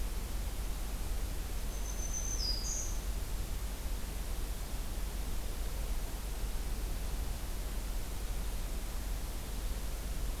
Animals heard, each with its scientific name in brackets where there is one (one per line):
Black-throated Green Warbler (Setophaga virens)